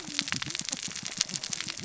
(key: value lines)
label: biophony, cascading saw
recorder: SoundTrap 600 or HydroMoth